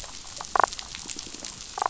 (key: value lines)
label: biophony, damselfish
recorder: SoundTrap 500